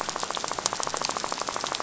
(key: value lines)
label: biophony, rattle
recorder: SoundTrap 500